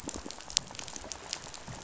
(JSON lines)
{"label": "biophony, rattle", "recorder": "SoundTrap 500"}